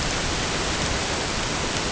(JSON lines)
{"label": "ambient", "recorder": "HydroMoth"}